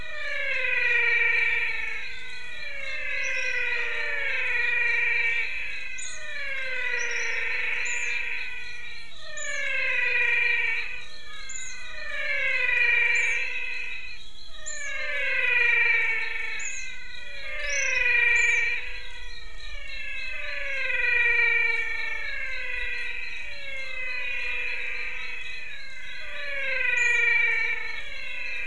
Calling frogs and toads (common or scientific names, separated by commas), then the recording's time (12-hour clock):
Adenomera diptyx, menwig frog
6:00pm